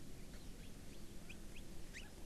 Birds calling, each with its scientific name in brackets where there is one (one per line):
Chinese Hwamei (Garrulax canorus)
Hawaii Amakihi (Chlorodrepanis virens)